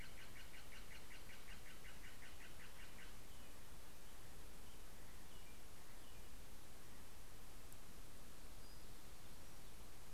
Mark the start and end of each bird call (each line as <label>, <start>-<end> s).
Steller's Jay (Cyanocitta stelleri), 0.0-3.7 s
American Robin (Turdus migratorius), 4.0-6.9 s
Townsend's Warbler (Setophaga townsendi), 8.2-10.0 s